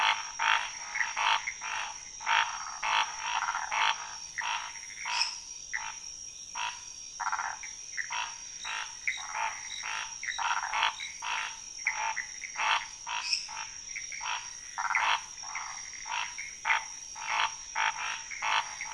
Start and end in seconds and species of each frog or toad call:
0.0	18.9	Scinax fuscovarius
5.1	5.4	lesser tree frog
5.7	18.9	Pithecopus azureus
13.2	13.5	lesser tree frog
3:15am

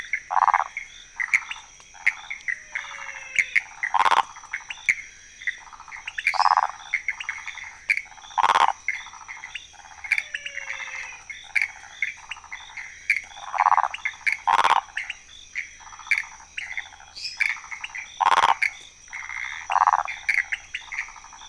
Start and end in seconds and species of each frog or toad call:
0.0	21.4	pointedbelly frog
0.0	21.4	waxy monkey tree frog
0.0	21.4	Pithecopus azureus
2.5	3.7	menwig frog
6.3	6.6	lesser tree frog
10.2	11.3	menwig frog
17.1	17.5	lesser tree frog
12:00am

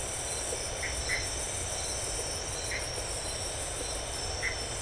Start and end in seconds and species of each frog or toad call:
0.7	1.3	Dendropsophus elegans
2.6	3.0	Dendropsophus elegans
4.3	4.6	Dendropsophus elegans
11:00pm

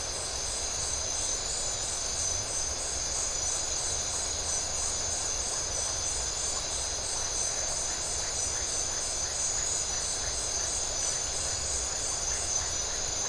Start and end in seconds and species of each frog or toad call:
none
12:15am

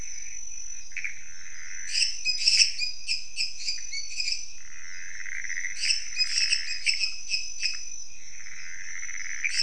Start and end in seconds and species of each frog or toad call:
0.0	9.6	Pithecopus azureus
1.9	4.4	lesser tree frog
5.8	7.7	lesser tree frog
11:15pm

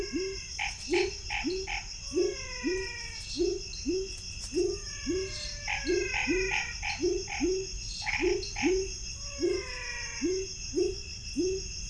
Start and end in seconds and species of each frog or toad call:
0.0	0.6	menwig frog
0.0	8.7	dwarf tree frog
0.0	11.8	pepper frog
0.5	1.9	Chaco tree frog
2.0	3.4	menwig frog
4.6	6.1	menwig frog
5.6	8.8	Chaco tree frog
9.0	10.6	menwig frog
7:15pm

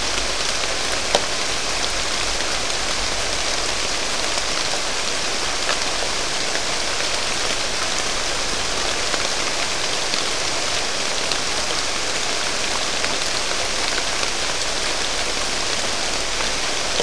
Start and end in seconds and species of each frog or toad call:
none
1:30am

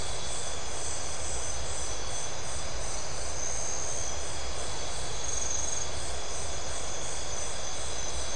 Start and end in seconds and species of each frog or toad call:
none
10:45pm

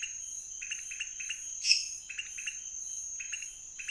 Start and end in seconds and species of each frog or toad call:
0.0	3.9	pointedbelly frog
1.6	2.1	lesser tree frog
12:30am

